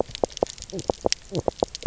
{"label": "biophony, knock croak", "recorder": "SoundTrap 300"}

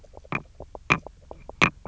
{"label": "biophony, knock croak", "recorder": "SoundTrap 300"}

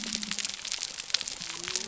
{"label": "biophony", "recorder": "SoundTrap 300"}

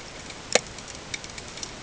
{"label": "ambient", "recorder": "HydroMoth"}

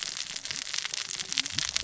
{"label": "biophony, cascading saw", "recorder": "SoundTrap 600 or HydroMoth"}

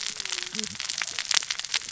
{"label": "biophony, cascading saw", "recorder": "SoundTrap 600 or HydroMoth"}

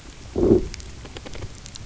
{"label": "biophony, low growl", "recorder": "SoundTrap 300"}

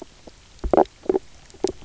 {"label": "biophony, knock croak", "recorder": "SoundTrap 300"}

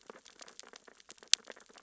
{"label": "biophony, sea urchins (Echinidae)", "recorder": "SoundTrap 600 or HydroMoth"}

